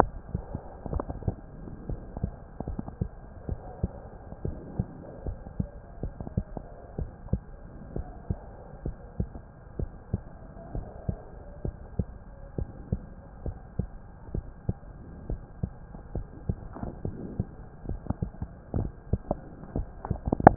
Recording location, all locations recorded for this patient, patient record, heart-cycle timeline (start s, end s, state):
mitral valve (MV)
aortic valve (AV)+pulmonary valve (PV)+tricuspid valve (TV)+mitral valve (MV)
#Age: Child
#Sex: Male
#Height: 141.0 cm
#Weight: 39.8 kg
#Pregnancy status: False
#Murmur: Absent
#Murmur locations: nan
#Most audible location: nan
#Systolic murmur timing: nan
#Systolic murmur shape: nan
#Systolic murmur grading: nan
#Systolic murmur pitch: nan
#Systolic murmur quality: nan
#Diastolic murmur timing: nan
#Diastolic murmur shape: nan
#Diastolic murmur grading: nan
#Diastolic murmur pitch: nan
#Diastolic murmur quality: nan
#Outcome: Normal
#Campaign: 2015 screening campaign
0.00	3.45	unannotated
3.45	3.60	S1
3.60	3.81	systole
3.81	3.92	S2
3.92	4.42	diastole
4.42	4.58	S1
4.58	4.77	systole
4.77	4.88	S2
4.88	5.24	diastole
5.24	5.38	S1
5.38	5.56	systole
5.56	5.70	S2
5.70	6.00	diastole
6.00	6.14	S1
6.14	6.33	systole
6.33	6.46	S2
6.46	6.96	diastole
6.96	7.07	S1
7.07	7.30	systole
7.30	7.42	S2
7.42	7.94	diastole
7.94	8.06	S1
8.06	8.27	systole
8.27	8.40	S2
8.40	8.82	diastole
8.82	8.96	S1
8.96	9.16	systole
9.16	9.30	S2
9.30	9.77	diastole
9.77	9.90	S1
9.90	10.11	systole
10.11	10.21	S2
10.21	10.73	diastole
10.73	10.84	S1
10.84	11.06	systole
11.06	11.16	S2
11.16	11.62	diastole
11.62	11.76	S1
11.76	11.96	systole
11.96	12.08	S2
12.08	12.55	diastole
12.55	12.68	S1
12.68	12.89	systole
12.89	13.02	S2
13.02	13.43	diastole
13.43	13.58	S1
13.58	13.76	systole
13.76	13.86	S2
13.86	14.33	diastole
14.33	14.43	S1
14.43	14.64	systole
14.64	14.78	S2
14.78	15.26	diastole
15.26	15.39	S1
15.39	15.60	systole
15.60	15.72	S2
15.72	16.12	diastole
16.12	16.25	S1
16.25	20.56	unannotated